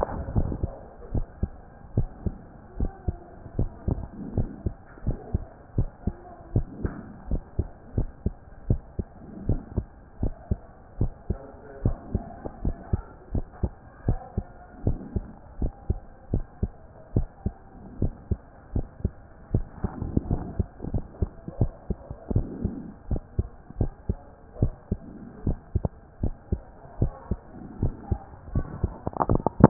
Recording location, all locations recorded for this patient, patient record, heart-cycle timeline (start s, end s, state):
mitral valve (MV)
aortic valve (AV)+pulmonary valve (PV)+tricuspid valve (TV)+mitral valve (MV)
#Age: Child
#Sex: Male
#Height: 131.0 cm
#Weight: 25.3 kg
#Pregnancy status: False
#Murmur: Absent
#Murmur locations: nan
#Most audible location: nan
#Systolic murmur timing: nan
#Systolic murmur shape: nan
#Systolic murmur grading: nan
#Systolic murmur pitch: nan
#Systolic murmur quality: nan
#Diastolic murmur timing: nan
#Diastolic murmur shape: nan
#Diastolic murmur grading: nan
#Diastolic murmur pitch: nan
#Diastolic murmur quality: nan
#Outcome: Abnormal
#Campaign: 2014 screening campaign
0.00	1.12	unannotated
1.12	1.26	S1
1.26	1.42	systole
1.42	1.50	S2
1.50	1.96	diastole
1.96	2.08	S1
2.08	2.24	systole
2.24	2.34	S2
2.34	2.78	diastole
2.78	2.90	S1
2.90	3.06	systole
3.06	3.16	S2
3.16	3.58	diastole
3.58	3.70	S1
3.70	3.88	systole
3.88	4.00	S2
4.00	4.36	diastole
4.36	4.48	S1
4.48	4.64	systole
4.64	4.74	S2
4.74	5.06	diastole
5.06	5.18	S1
5.18	5.32	systole
5.32	5.42	S2
5.42	5.76	diastole
5.76	5.88	S1
5.88	6.06	systole
6.06	6.14	S2
6.14	6.54	diastole
6.54	6.66	S1
6.66	6.82	systole
6.82	6.92	S2
6.92	7.30	diastole
7.30	7.42	S1
7.42	7.58	systole
7.58	7.68	S2
7.68	7.96	diastole
7.96	8.08	S1
8.08	8.24	systole
8.24	8.34	S2
8.34	8.68	diastole
8.68	8.80	S1
8.80	8.98	systole
8.98	9.06	S2
9.06	9.46	diastole
9.46	9.60	S1
9.60	9.76	systole
9.76	9.86	S2
9.86	10.22	diastole
10.22	10.34	S1
10.34	10.50	systole
10.50	10.58	S2
10.58	11.00	diastole
11.00	11.12	S1
11.12	11.28	systole
11.28	11.38	S2
11.38	11.84	diastole
11.84	11.96	S1
11.96	12.12	systole
12.12	12.22	S2
12.22	12.64	diastole
12.64	12.76	S1
12.76	12.92	systole
12.92	13.02	S2
13.02	13.32	diastole
13.32	13.44	S1
13.44	13.62	systole
13.62	13.72	S2
13.72	14.06	diastole
14.06	14.18	S1
14.18	14.36	systole
14.36	14.44	S2
14.44	14.84	diastole
14.84	14.98	S1
14.98	15.14	systole
15.14	15.24	S2
15.24	15.60	diastole
15.60	15.72	S1
15.72	15.88	systole
15.88	15.98	S2
15.98	16.32	diastole
16.32	16.44	S1
16.44	16.62	systole
16.62	16.72	S2
16.72	17.14	diastole
17.14	17.28	S1
17.28	17.44	systole
17.44	17.54	S2
17.54	18.00	diastole
18.00	18.12	S1
18.12	18.30	systole
18.30	18.38	S2
18.38	18.74	diastole
18.74	18.86	S1
18.86	19.02	systole
19.02	19.12	S2
19.12	19.52	diastole
19.52	19.64	S1
19.64	19.82	systole
19.82	19.92	S2
19.92	20.28	diastole
20.28	20.42	S1
20.42	20.58	systole
20.58	20.68	S2
20.68	20.92	diastole
20.92	21.04	S1
21.04	21.20	systole
21.20	21.30	S2
21.30	21.60	diastole
21.60	21.72	S1
21.72	21.88	systole
21.88	21.96	S2
21.96	22.32	diastole
22.32	22.46	S1
22.46	22.62	systole
22.62	22.74	S2
22.74	23.10	diastole
23.10	23.22	S1
23.22	23.38	systole
23.38	23.48	S2
23.48	23.78	diastole
23.78	23.92	S1
23.92	24.08	systole
24.08	24.18	S2
24.18	24.60	diastole
24.60	24.72	S1
24.72	24.90	systole
24.90	25.00	S2
25.00	25.46	diastole
25.46	25.58	S1
25.58	25.74	systole
25.74	25.86	S2
25.86	26.22	diastole
26.22	26.34	S1
26.34	26.50	systole
26.50	26.60	S2
26.60	27.00	diastole
27.00	27.12	S1
27.12	27.30	systole
27.30	27.38	S2
27.38	27.80	diastole
27.80	27.94	S1
27.94	28.10	systole
28.10	28.20	S2
28.20	28.54	diastole
28.54	28.66	S1
28.66	28.82	systole
28.82	28.92	S2
28.92	29.28	diastole
29.28	29.70	unannotated